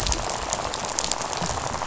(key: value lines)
label: biophony, rattle
recorder: SoundTrap 500